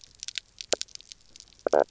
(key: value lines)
label: biophony, knock croak
recorder: SoundTrap 300